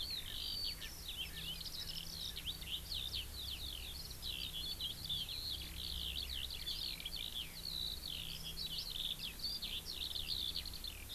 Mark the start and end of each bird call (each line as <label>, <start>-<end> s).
Eurasian Skylark (Alauda arvensis), 0.0-11.1 s
Erckel's Francolin (Pternistis erckelii), 0.7-0.9 s
Erckel's Francolin (Pternistis erckelii), 1.2-1.4 s